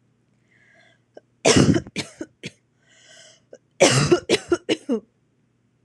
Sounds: Cough